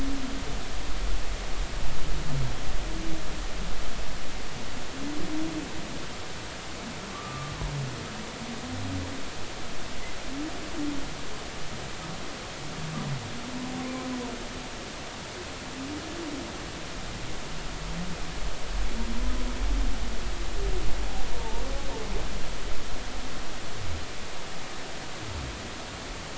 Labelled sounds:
7.1	7.5	humpback whale, 1.1 to 1.3 kHz
21.4	21.6	humpback whale, 0.83 to 0.99 kHz

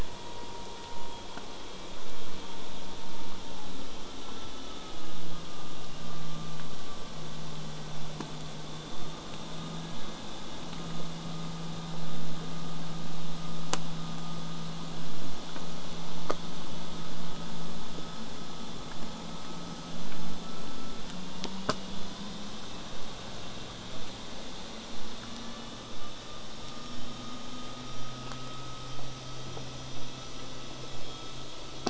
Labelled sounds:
7.8	9.4	killer whale, southern resident, J pod, 7.6 to 8.0 kHz
26.9	31.8	vessel noise, 0 to 8.0 kHz

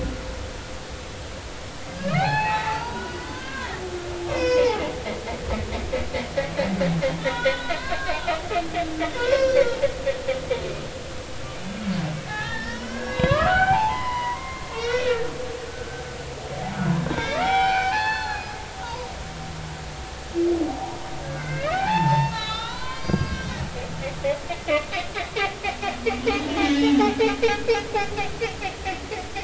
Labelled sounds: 2.0	3.8	humpback whale, 0.80 to 4.9 kHz
4.3	4.8	humpback whale, 0.80 to 5.7 kHz
7.2	9.7	humpback whale, 0.86 to 5.5 kHz
12.3	15.3	humpback whale, 0.80 to 5.9 kHz
17.0	18.5	humpback whale, 0.80 to 5.5 kHz
18.8	19.1	humpback whale, 0.86 to 1.1 kHz
21.2	23.5	humpback whale, 0.80 to 6.0 kHz
26.6	27.7	humpback whale, 1.6 to 3.8 kHz

